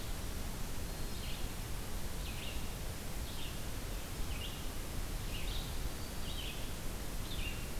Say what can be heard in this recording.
Black-throated Green Warbler, Red-eyed Vireo